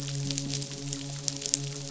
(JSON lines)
{"label": "biophony, midshipman", "recorder": "SoundTrap 500"}